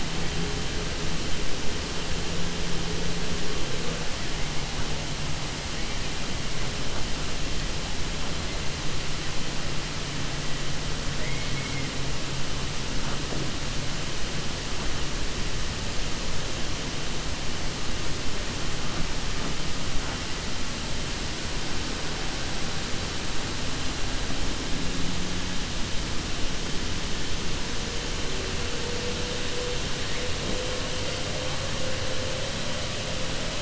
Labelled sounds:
11.1	11.9	killer whale, 1.9 to 2.9 kHz

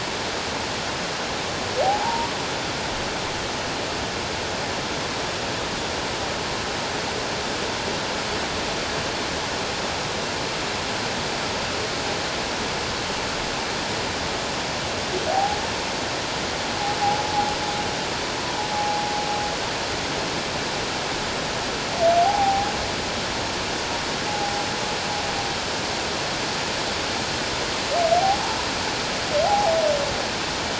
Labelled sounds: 1.8	2.3	humpback whale, 0.78 to 1.0 kHz
15.3	15.6	humpback whale, 0.78 to 0.94 kHz
18.7	19.0	humpback whale, 0.78 to 0.88 kHz
22.2	22.7	humpback whale, 0.78 to 0.91 kHz
24.3	24.6	humpback whale, 0.78 to 0.91 kHz
28.1	28.4	humpback whale, 0.78 to 0.88 kHz
29.4	29.7	humpback whale, 0.78 to 0.88 kHz

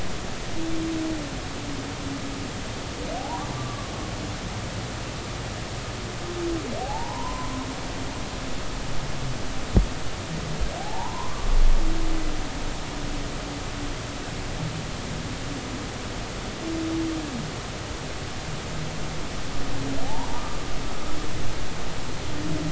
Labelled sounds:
3.2	3.9	humpback whale, 0.80 to 1.2 kHz
6.8	7.7	humpback whale, 0.80 to 1.1 kHz
10.8	11.5	humpback whale, 0.80 to 1.2 kHz
20.0	20.6	humpback whale, 0.80 to 1.3 kHz

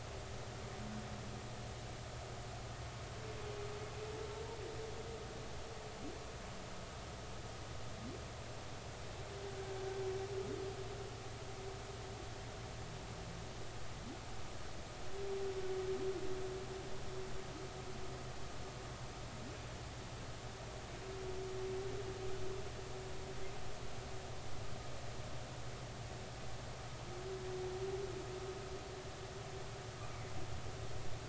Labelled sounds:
30.1	30.3	humpback whale, 2.0 to 2.3 kHz

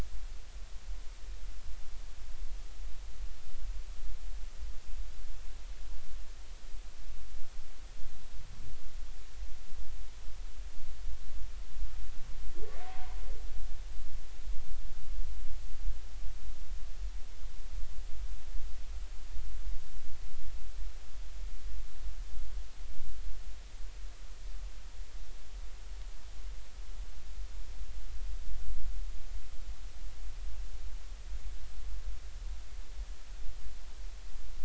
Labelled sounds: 12.8	13.2	humpback whale, 0.86 to 1.1 kHz

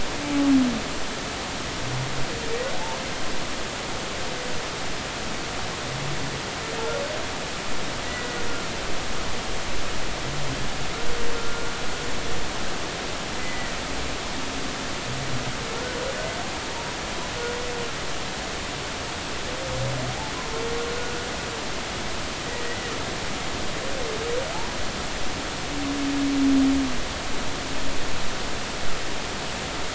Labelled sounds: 11.4	11.7	humpback whale, 1.3 to 1.4 kHz
13.4	13.7	humpback whale, 1.9 to 2.1 kHz
22.5	22.9	humpback whale, 1.8 to 2.1 kHz

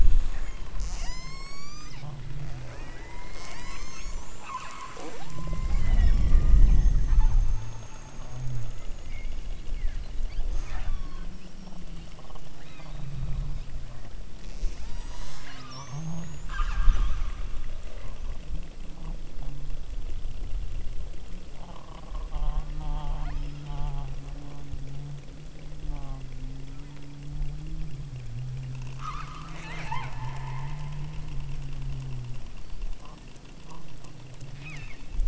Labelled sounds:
0.3	2.2	killer whale, southern Alaska resident, 0.50 to 8.0 kHz
2.6	7.4	killer whale, southern Alaska resident, 0.11 to 8.0 kHz
10.4	11.3	killer whale, southern Alaska resident, 0.27 to 8.0 kHz
12.5	13.2	killer whale, southern Alaska resident, 1.2 to 5.7 kHz
14.4	16.1	killer whale, southern Alaska resident, 0.52 to 8.0 kHz
16.4	17.4	killer whale, southern Alaska resident, 0.82 to 8.0 kHz
22.7	23.8	killer whale, southern Alaska resident, 0.48 to 5.5 kHz
28.9	31.0	killer whale, southern Alaska resident, 0.37 to 8.0 kHz
34.5	35.2	killer whale, southern Alaska resident, 0.96 to 7.3 kHz

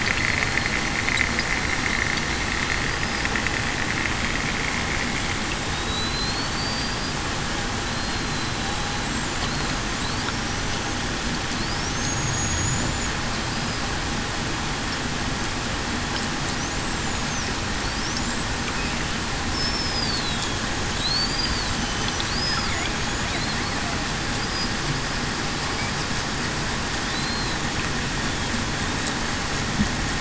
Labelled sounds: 5.7	7.1	killer whale, Bigg's (transient), 3.7 to 4.9 kHz
7.9	8.5	killer whale, Bigg's (transient), 4.0 to 4.2 kHz
12.1	12.9	killer whale, Bigg's (transient), 6.5 to 7.0 kHz
19.5	20.4	killer whale, Bigg's (transient), 3.8 to 5.4 kHz
21.2	21.7	killer whale, Bigg's (transient), 4.2 to 4.9 kHz
27.1	27.6	killer whale, Bigg's (transient), 3.9 to 4.2 kHz

